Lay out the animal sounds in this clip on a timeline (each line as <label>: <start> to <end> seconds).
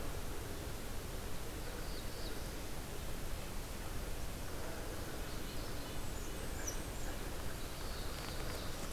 Black-throated Blue Warbler (Setophaga caerulescens): 1.5 to 2.6 seconds
Red-breasted Nuthatch (Sitta canadensis): 4.5 to 7.5 seconds
Blackburnian Warbler (Setophaga fusca): 5.6 to 7.2 seconds
Black-throated Blue Warbler (Setophaga caerulescens): 7.5 to 8.9 seconds